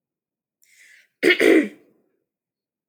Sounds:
Throat clearing